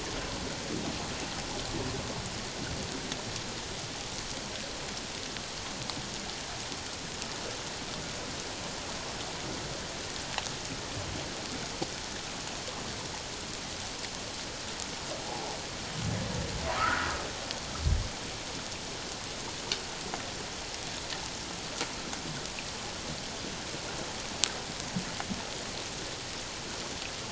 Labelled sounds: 16.7	17.1	humpback whale, 0.94 to 1.6 kHz

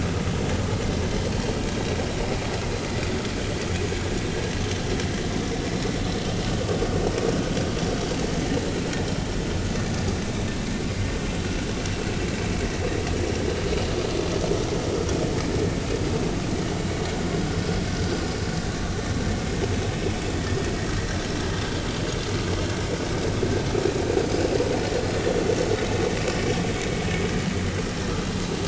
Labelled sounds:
24.9	25.2	vessel noise, 4.2 to 4.3 kHz

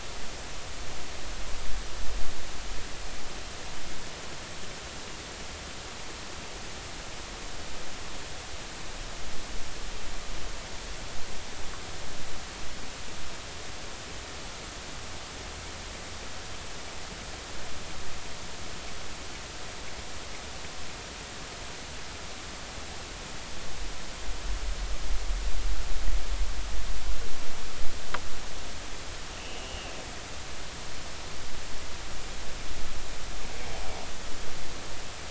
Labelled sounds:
29.4	29.9	killer whale, northern resident, G clan, 2.5 to 3.0 kHz

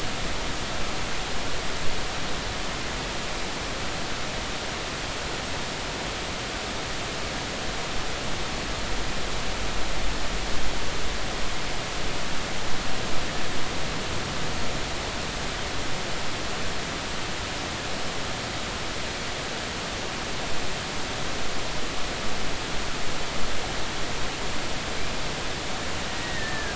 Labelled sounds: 26.2	26.7	killer whale, Bigg's (transient), 1.6 to 2.1 kHz

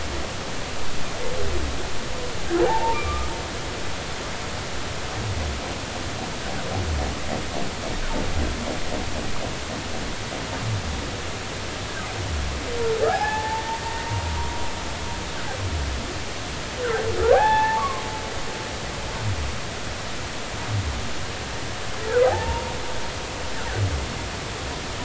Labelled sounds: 2.7	3.3	humpback whale, 0.80 to 1.3 kHz
13.1	14.1	humpback whale, 0.80 to 1.9 kHz
17.2	18.0	humpback whale, 0.80 to 2.7 kHz
22.2	22.7	humpback whale, 0.80 to 0.99 kHz

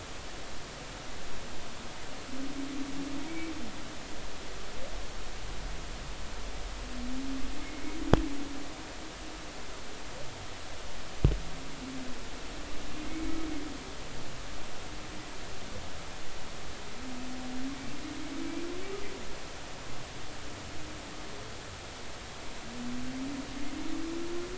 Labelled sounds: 3.3	3.5	humpback whale, 2.2 to 2.3 kHz
13.1	13.3	humpback whale, 2.1 to 2.3 kHz
18.4	18.7	humpback whale, 2.3 to 2.4 kHz

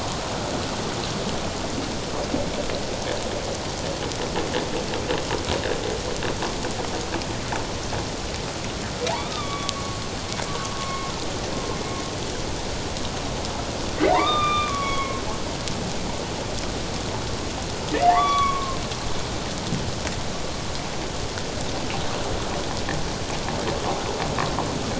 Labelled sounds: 9.1	10.0	humpback whale, 0.78 to 2.4 kHz
10.8	11.1	humpback whale, 1.0 to 2.2 kHz
14.1	15.2	humpback whale, 0.88 to 3.8 kHz
18.0	18.8	humpback whale, 0.78 to 3.5 kHz

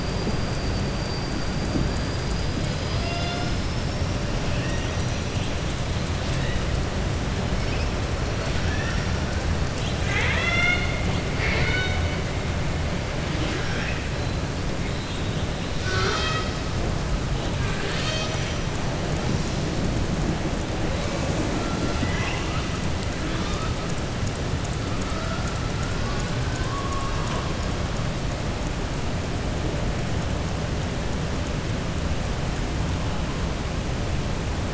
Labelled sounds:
4.5	5.0	killer whale, southern resident, 1.7 to 3.8 kHz
9.7	11.0	killer whale, southern resident, 0.67 to 6.2 kHz
11.3	12.1	killer whale, southern resident, 0.45 to 5.2 kHz
21.7	22.7	killer whale, southern resident, 0.85 to 3.6 kHz

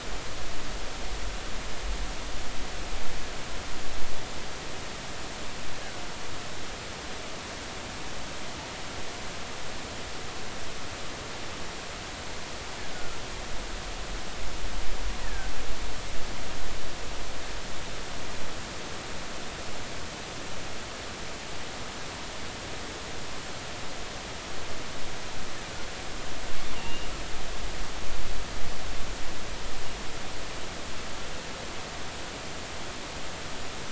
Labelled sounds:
12.9	13.2	killer whale, offshore, 1.2 to 1.5 kHz
15.2	15.5	killer whale, offshore, 1.5 to 2.0 kHz
26.7	27.1	killer whale, offshore, 2.7 to 3.0 kHz

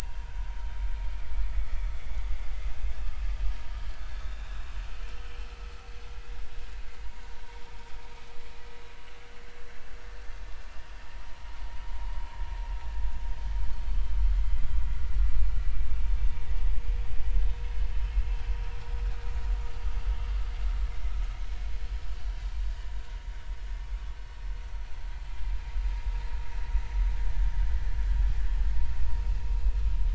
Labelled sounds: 1.0	1.2	vessel noise, 1.4 to 1.7 kHz
2.6	2.9	vessel noise, 2.5 to 2.7 kHz
4.1	4.4	vessel noise, 3.5 to 3.8 kHz
14.3	14.6	vessel noise, 1.9 to 2.1 kHz

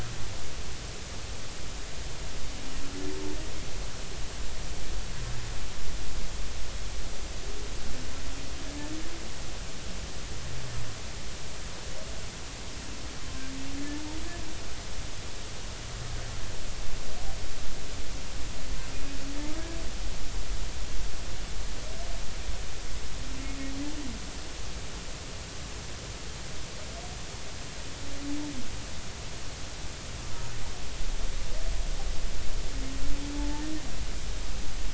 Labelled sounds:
18.9	19.2	humpback whale, 2.4 to 2.6 kHz
33.4	33.6	humpback whale, 0.83 to 0.96 kHz

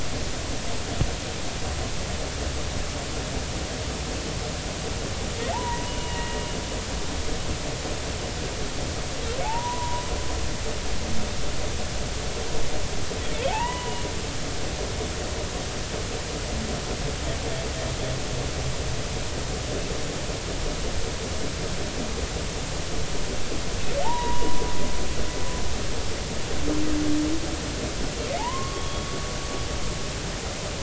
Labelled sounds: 5.5	6.4	humpback whale, 0.80 to 3.0 kHz
9.4	10.0	humpback whale, 0.80 to 1.1 kHz
13.5	14.1	humpback whale, 0.80 to 3.0 kHz
24.0	24.6	humpback whale, 0.80 to 1.0 kHz
28.4	29.0	humpback whale, 0.80 to 1.2 kHz

